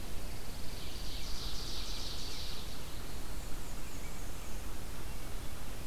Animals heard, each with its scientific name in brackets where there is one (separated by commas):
Ovenbird (Seiurus aurocapilla), Black-and-white Warbler (Mniotilta varia), Pine Warbler (Setophaga pinus)